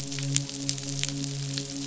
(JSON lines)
{"label": "biophony, midshipman", "recorder": "SoundTrap 500"}